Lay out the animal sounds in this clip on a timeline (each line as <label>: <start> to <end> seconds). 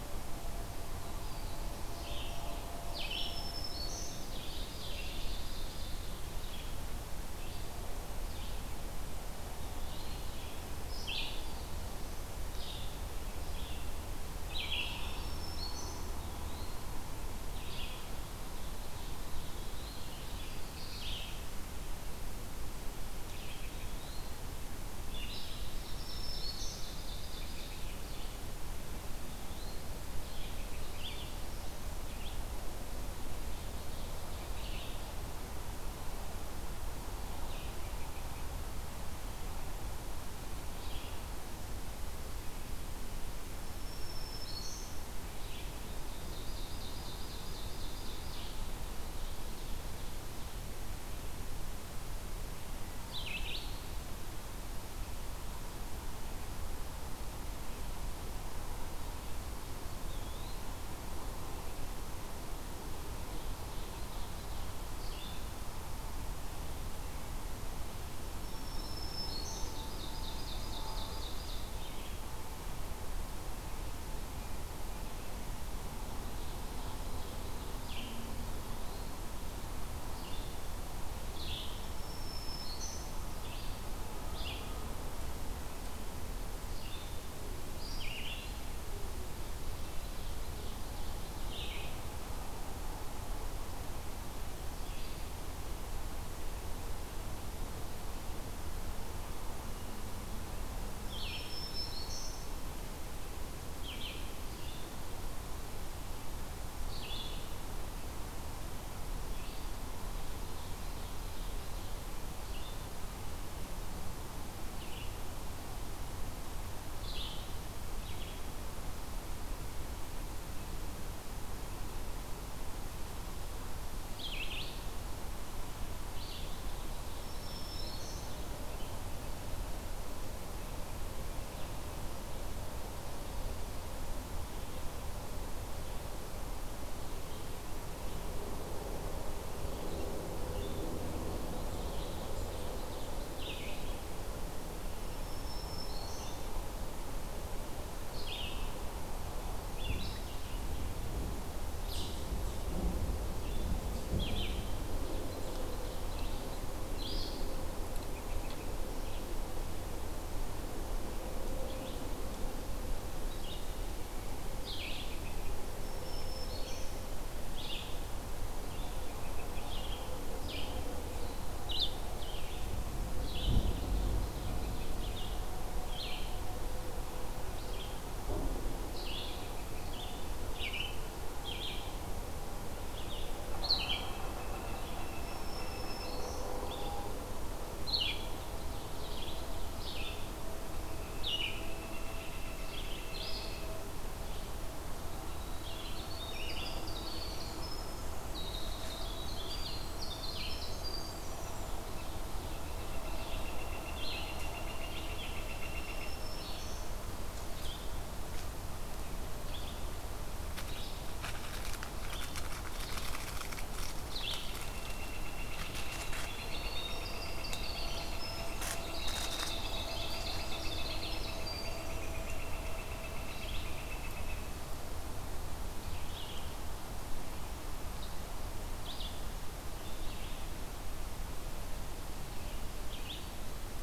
Black-throated Green Warbler (Setophaga virens): 2.8 to 4.3 seconds
Ovenbird (Seiurus aurocapilla): 4.0 to 6.5 seconds
Red-eyed Vireo (Vireo olivaceus): 7.0 to 35.3 seconds
Black-throated Green Warbler (Setophaga virens): 14.9 to 16.3 seconds
Eastern Wood-Pewee (Contopus virens): 16.1 to 17.0 seconds
Ovenbird (Seiurus aurocapilla): 18.3 to 20.3 seconds
Eastern Wood-Pewee (Contopus virens): 23.8 to 24.5 seconds
Ovenbird (Seiurus aurocapilla): 25.5 to 28.1 seconds
Black-throated Green Warbler (Setophaga virens): 25.7 to 26.9 seconds
Northern Flicker (Colaptes auratus): 27.3 to 28.2 seconds
Northern Flicker (Colaptes auratus): 37.3 to 38.5 seconds
Black-throated Green Warbler (Setophaga virens): 43.6 to 44.9 seconds
Ovenbird (Seiurus aurocapilla): 45.7 to 48.6 seconds
Ovenbird (Seiurus aurocapilla): 48.9 to 50.9 seconds
Red-eyed Vireo (Vireo olivaceus): 52.9 to 53.8 seconds
Eastern Wood-Pewee (Contopus virens): 59.7 to 60.8 seconds
Ovenbird (Seiurus aurocapilla): 63.3 to 64.7 seconds
Red-eyed Vireo (Vireo olivaceus): 64.9 to 65.5 seconds
Black-throated Green Warbler (Setophaga virens): 68.2 to 69.8 seconds
Ovenbird (Seiurus aurocapilla): 69.7 to 71.8 seconds
Ovenbird (Seiurus aurocapilla): 76.1 to 77.8 seconds
Red-eyed Vireo (Vireo olivaceus): 77.7 to 92.0 seconds
Black-throated Green Warbler (Setophaga virens): 81.6 to 83.2 seconds
Ovenbird (Seiurus aurocapilla): 89.9 to 91.6 seconds
Red-eyed Vireo (Vireo olivaceus): 100.9 to 118.5 seconds
Black-throated Green Warbler (Setophaga virens): 101.1 to 102.6 seconds
Ovenbird (Seiurus aurocapilla): 110.0 to 112.1 seconds
Red-eyed Vireo (Vireo olivaceus): 124.1 to 126.9 seconds
Black-throated Green Warbler (Setophaga virens): 127.1 to 128.5 seconds
Ovenbird (Seiurus aurocapilla): 142.3 to 143.5 seconds
Red-eyed Vireo (Vireo olivaceus): 143.2 to 144.0 seconds
Black-throated Green Warbler (Setophaga virens): 145.0 to 146.5 seconds
Red-eyed Vireo (Vireo olivaceus): 148.0 to 157.9 seconds
Eastern Chipmunk (Tamias striatus): 151.7 to 152.2 seconds
Ovenbird (Seiurus aurocapilla): 154.7 to 156.7 seconds
Northern Flicker (Colaptes auratus): 157.9 to 158.8 seconds
Red-eyed Vireo (Vireo olivaceus): 163.0 to 176.4 seconds
Northern Flicker (Colaptes auratus): 164.7 to 165.7 seconds
Black-throated Green Warbler (Setophaga virens): 165.6 to 167.3 seconds
Northern Flicker (Colaptes auratus): 168.6 to 169.9 seconds
Ovenbird (Seiurus aurocapilla): 173.4 to 175.3 seconds
Red-eyed Vireo (Vireo olivaceus): 177.4 to 193.7 seconds
Northern Flicker (Colaptes auratus): 183.8 to 186.2 seconds
Black-throated Green Warbler (Setophaga virens): 185.1 to 186.6 seconds
Northern Flicker (Colaptes auratus): 191.1 to 193.9 seconds
Winter Wren (Troglodytes hiemalis): 195.4 to 201.8 seconds
Northern Flicker (Colaptes auratus): 202.7 to 206.2 seconds
Black-throated Green Warbler (Setophaga virens): 205.7 to 207.0 seconds
Red-eyed Vireo (Vireo olivaceus): 207.6 to 214.6 seconds
Northern Flicker (Colaptes auratus): 214.4 to 224.6 seconds
Winter Wren (Troglodytes hiemalis): 216.2 to 221.7 seconds
Red-eyed Vireo (Vireo olivaceus): 225.7 to 233.8 seconds